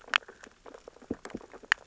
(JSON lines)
{"label": "biophony, sea urchins (Echinidae)", "recorder": "SoundTrap 600 or HydroMoth"}